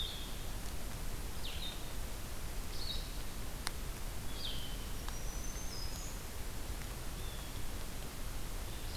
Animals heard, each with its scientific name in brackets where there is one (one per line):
Blue Jay (Cyanocitta cristata)
Blue-headed Vireo (Vireo solitarius)
Black-throated Green Warbler (Setophaga virens)